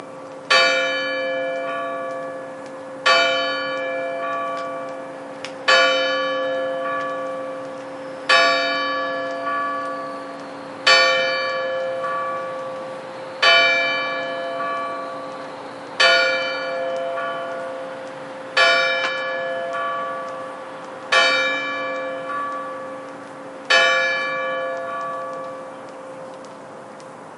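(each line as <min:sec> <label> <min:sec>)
0:00.4 A bell rings repeatedly with pauses between the rings. 0:26.8
0:00.4 A bell tolls a second time. 0:26.8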